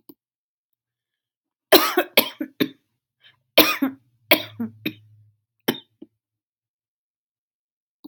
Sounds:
Cough